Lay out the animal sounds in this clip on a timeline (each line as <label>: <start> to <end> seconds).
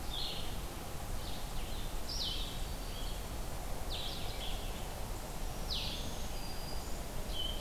Blue-headed Vireo (Vireo solitarius): 0.0 to 7.6 seconds
Red-eyed Vireo (Vireo olivaceus): 0.0 to 7.6 seconds
Black-throated Green Warbler (Setophaga virens): 5.3 to 7.1 seconds